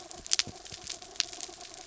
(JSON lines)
{"label": "anthrophony, mechanical", "recorder": "SoundTrap 300"}